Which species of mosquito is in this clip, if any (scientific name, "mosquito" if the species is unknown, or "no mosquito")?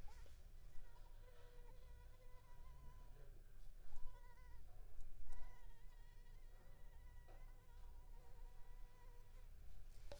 Anopheles arabiensis